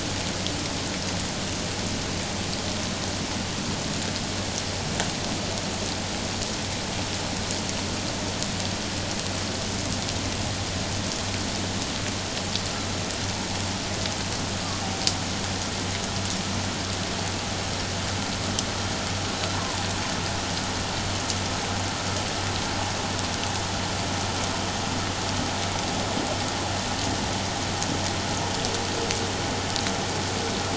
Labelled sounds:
19.6	19.9	humpback whale, 0.78 to 1.2 kHz

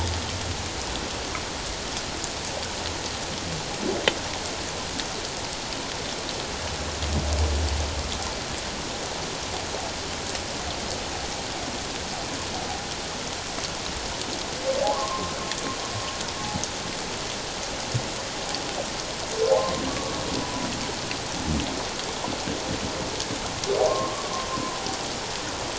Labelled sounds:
14.8	15.4	humpback whale, 0.78 to 1.2 kHz
19.9	20.1	humpback whale, 1.1 to 1.2 kHz
23.8	24.8	humpback whale, 0.94 to 1.2 kHz

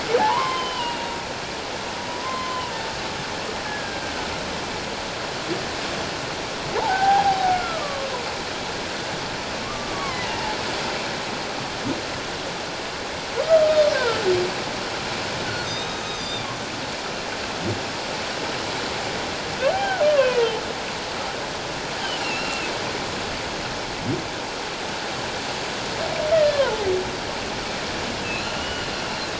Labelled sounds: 0.2	1.1	humpback whale, 0.78 to 3.2 kHz
2.2	2.7	humpback whale, 0.94 to 1.1 kHz
3.6	4.0	humpback whale, 1.5 to 1.8 kHz
6.7	8.1	humpback whale, 0.78 to 1.7 kHz
9.9	10.3	humpback whale, 1.0 to 2.3 kHz
13.5	14.2	humpback whale, 1.1 to 3.8 kHz
15.7	16.5	humpback whale, 3.5 to 6.3 kHz
19.7	20.6	humpback whale, 0.78 to 2.8 kHz
22.2	22.7	humpback whale, 2.5 to 2.8 kHz
26.3	26.9	humpback whale, 0.78 to 2.0 kHz
28.6	28.9	humpback whale, 2.8 to 3.0 kHz

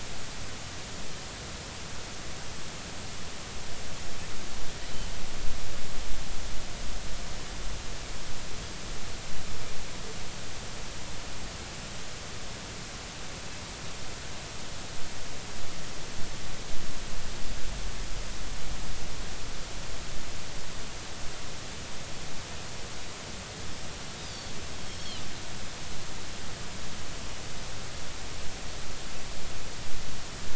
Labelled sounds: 24.9	25.2	Pacific white-sided dolphin, 3.8 to 5.5 kHz

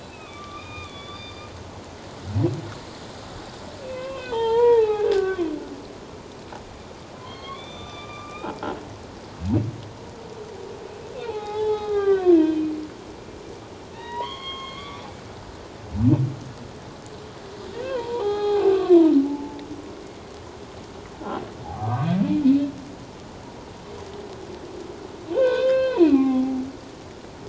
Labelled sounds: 0.0	1.5	humpback whale, 1.1 to 4.9 kHz
3.8	5.5	humpback whale, 0.78 to 3.8 kHz
7.2	8.6	humpback whale, 0.97 to 6.0 kHz
11.2	12.7	humpback whale, 0.78 to 4.3 kHz
13.9	15.1	humpback whale, 0.88 to 4.5 kHz
17.8	19.6	humpback whale, 0.78 to 4.2 kHz
21.6	22.1	humpback whale, 0.78 to 1.6 kHz
22.4	22.7	humpback whale, 2.5 to 2.7 kHz
25.3	26.6	humpback whale, 0.78 to 4.3 kHz

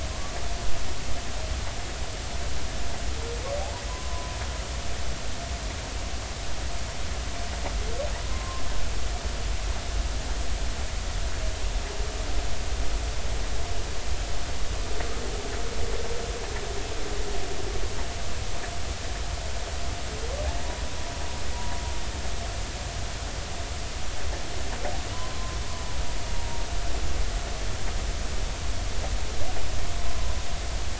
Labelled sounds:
0.1	0.4	humpback whale, 0.99 to 1.2 kHz
3.9	4.4	humpback whale, 0.96 to 1.1 kHz
8.3	8.6	humpback whale, 0.99 to 1.1 kHz
25.1	25.6	humpback whale, 0.96 to 1.1 kHz
26.3	26.6	humpback whale, 0.90 to 0.99 kHz

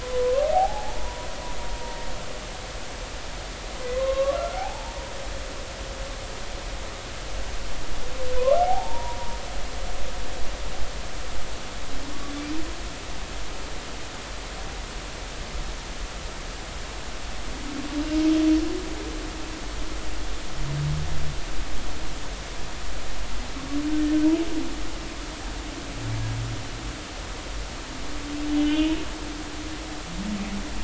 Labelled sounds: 0.0	1.3	humpback whale, 0.80 to 1.2 kHz
3.9	5.0	humpback whale, 0.80 to 1.2 kHz
8.4	9.4	humpback whale, 0.80 to 1.4 kHz
28.6	28.9	humpback whale, 2.4 to 3.2 kHz

